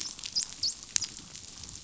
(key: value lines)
label: biophony, dolphin
recorder: SoundTrap 500